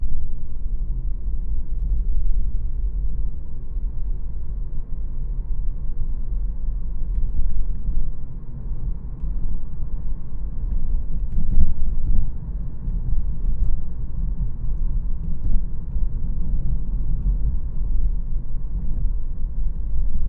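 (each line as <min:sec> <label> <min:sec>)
0:00.0 Sounds inside a car. 0:20.3
0:11.5 Sound of a car driving over gravel. 0:20.3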